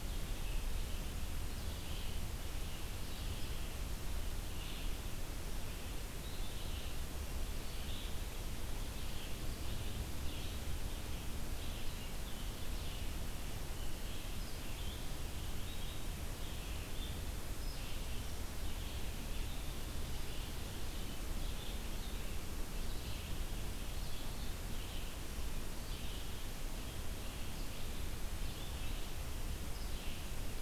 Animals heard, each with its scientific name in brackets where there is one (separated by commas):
Red-eyed Vireo (Vireo olivaceus)